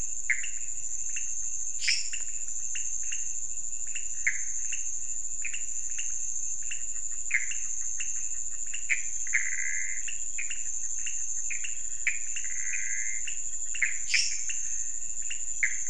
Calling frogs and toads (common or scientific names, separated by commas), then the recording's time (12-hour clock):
pointedbelly frog, Pithecopus azureus, lesser tree frog
1:30am